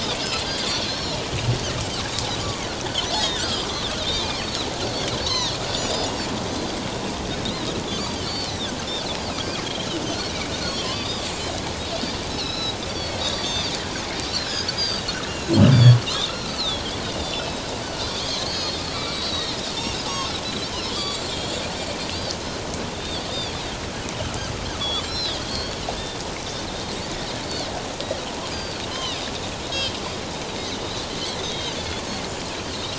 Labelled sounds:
0.2	0.4	Pacific white-sided dolphin, 2.4 to 2.9 kHz
0.9	1.2	Pacific white-sided dolphin, 5.2 to 5.7 kHz
3.2	3.7	Pacific white-sided dolphin, 1.2 to 5.0 kHz
4.0	5.6	Pacific white-sided dolphin, 2.2 to 6.3 kHz
5.9	6.1	Pacific white-sided dolphin, 4.7 to 5.1 kHz
7.4	8.7	Pacific white-sided dolphin, 3.2 to 4.8 kHz
10.7	11.1	Pacific white-sided dolphin, 0.97 to 3.5 kHz
12.3	13.7	Pacific white-sided dolphin, 2.5 to 5.5 kHz
14.2	16.0	Pacific white-sided dolphin, 3.2 to 7.0 kHz
16.3	16.8	Pacific white-sided dolphin, 3.3 to 4.7 kHz
17.2	17.6	Pacific white-sided dolphin, 2.5 to 5.4 kHz
18.0	21.7	Pacific white-sided dolphin, 2.2 to 6.6 kHz
22.9	23.6	Pacific white-sided dolphin, 3.2 to 5.0 kHz
25.0	25.8	Pacific white-sided dolphin, 3.1 to 4.8 kHz
26.7	27.7	Pacific white-sided dolphin, 3.5 to 4.6 kHz
28.5	29.3	Pacific white-sided dolphin, 2.4 to 4.9 kHz
29.7	30.0	Pacific white-sided dolphin, 3.0 to 3.3 kHz
30.6	31.1	Pacific white-sided dolphin, 3.5 to 4.1 kHz
31.4	31.8	Pacific white-sided dolphin, 3.0 to 4.0 kHz

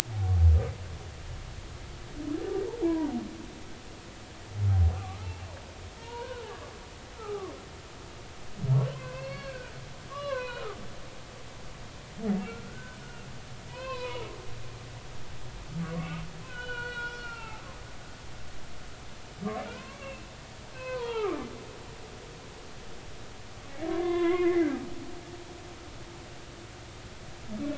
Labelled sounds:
2.8	3.1	humpback whale, 0.80 to 1.7 kHz
5.0	6.5	humpback whale, 0.90 to 3.0 kHz
7.2	7.5	humpback whale, 0.80 to 1.4 kHz
8.9	10.8	humpback whale, 0.90 to 4.5 kHz
12.5	13.0	humpback whale, 1.3 to 1.6 kHz
13.7	14.2	humpback whale, 0.90 to 3.5 kHz
15.8	17.6	humpback whale, 0.80 to 5.4 kHz
19.8	21.5	humpback whale, 0.80 to 2.8 kHz
22.0	22.3	humpback whale, 3.0 to 3.4 kHz
23.9	24.7	humpback whale, 0.96 to 3.6 kHz

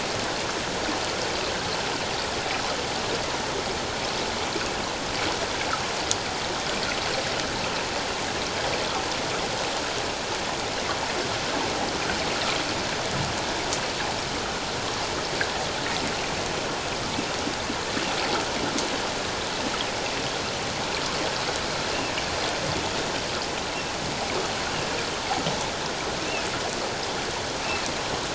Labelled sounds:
26.2	26.5	humpback whale, 2.4 to 2.8 kHz

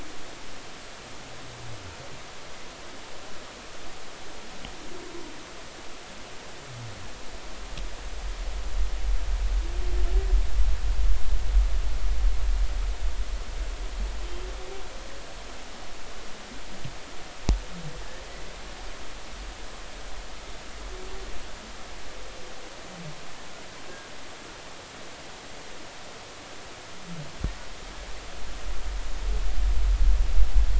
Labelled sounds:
18.3	18.5	humpback whale, 1.9 to 2.1 kHz

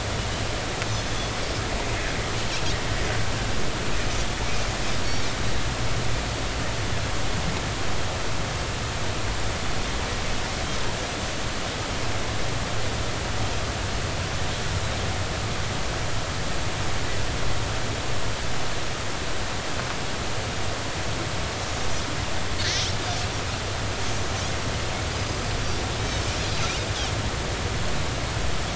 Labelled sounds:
5.0	5.2	Pacific white-sided dolphin, 5.5 to 5.7 kHz
25.1	25.4	Pacific white-sided dolphin, 4.6 to 6.3 kHz

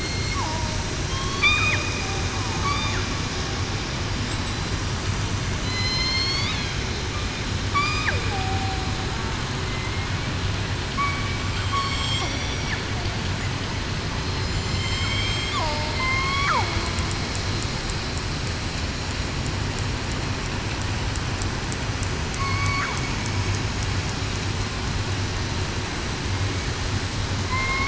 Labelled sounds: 5.6	6.5	killer whale, southern resident, 2.0 to 5.6 kHz

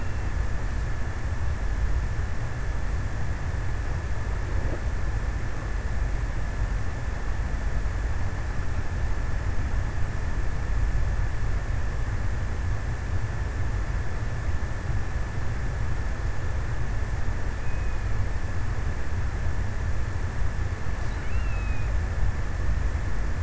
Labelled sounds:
20.6	22.8	killer whale, offshore, 2.2 to 4.5 kHz

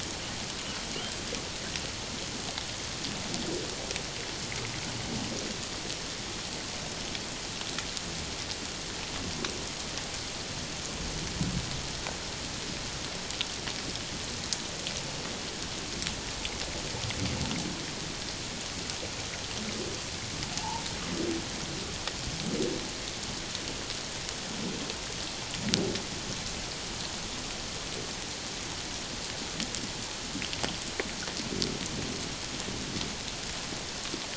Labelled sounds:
20.5	20.8	humpback whale, 0.81 to 1.0 kHz

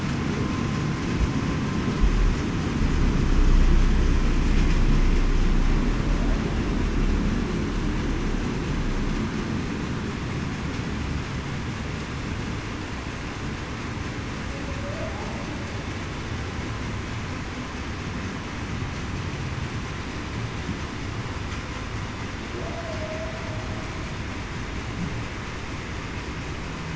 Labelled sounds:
22.7	23.4	humpback whale, 0.58 to 0.73 kHz

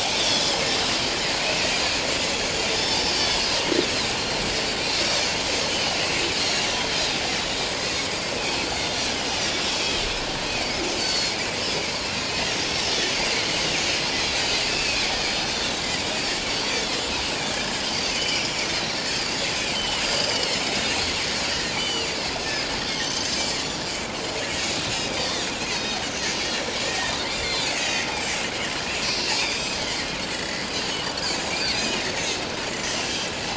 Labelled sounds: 0.1	0.6	Pacific white-sided dolphin, 3.1 to 5.8 kHz
1.4	1.7	Pacific white-sided dolphin, 2.1 to 2.7 kHz
2.7	3.4	Pacific white-sided dolphin, 3.4 to 5.6 kHz
5.0	5.3	Pacific white-sided dolphin, 4.3 to 4.6 kHz
5.7	7.1	Pacific white-sided dolphin, 2.9 to 4.4 kHz
10.5	11.3	Pacific white-sided dolphin, 2.1 to 6.8 kHz
12.7	12.9	Pacific white-sided dolphin, 5.0 to 5.5 kHz
14.2	15.7	Pacific white-sided dolphin, 2.3 to 4.7 kHz
16.5	16.8	Pacific white-sided dolphin, 4.5 to 4.7 kHz
17.5	18.4	Pacific white-sided dolphin, 1.6 to 4.8 kHz
19.7	20.9	Pacific white-sided dolphin, 2.8 to 5.4 kHz
21.8	23.8	Pacific white-sided dolphin, 2.7 to 7.1 kHz
24.5	26.0	Pacific white-sided dolphin, 2.5 to 6.9 kHz
26.9	28.1	Pacific white-sided dolphin, 1.7 to 7.3 kHz
29.0	30.6	Pacific white-sided dolphin, 1.7 to 7.9 kHz
31.6	32.0	Pacific white-sided dolphin, 2.3 to 6.4 kHz
32.9	33.3	Pacific white-sided dolphin, 5.6 to 6.2 kHz

